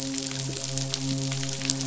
{"label": "biophony, midshipman", "recorder": "SoundTrap 500"}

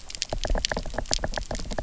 {"label": "biophony, knock", "recorder": "SoundTrap 300"}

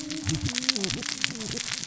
{"label": "biophony, cascading saw", "recorder": "SoundTrap 600 or HydroMoth"}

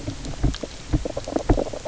{"label": "biophony, knock croak", "recorder": "SoundTrap 300"}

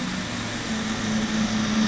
{"label": "anthrophony, boat engine", "recorder": "SoundTrap 500"}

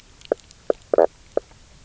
{"label": "biophony, knock croak", "recorder": "SoundTrap 300"}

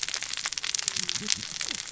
{"label": "biophony, cascading saw", "recorder": "SoundTrap 600 or HydroMoth"}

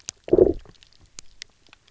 {"label": "biophony, low growl", "recorder": "SoundTrap 300"}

